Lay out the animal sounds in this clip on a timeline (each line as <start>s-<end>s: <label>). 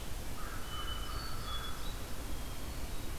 0.2s-2.0s: American Crow (Corvus brachyrhynchos)
0.5s-3.2s: Hermit Thrush (Catharus guttatus)